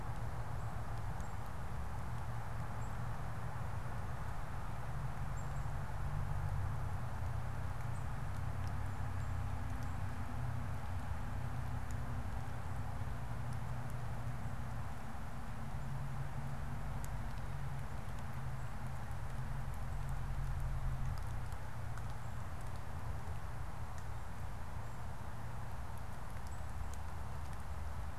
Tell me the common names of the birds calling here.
unidentified bird